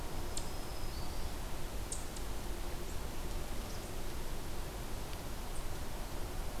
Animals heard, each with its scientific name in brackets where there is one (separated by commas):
Eastern Chipmunk (Tamias striatus), Black-throated Green Warbler (Setophaga virens)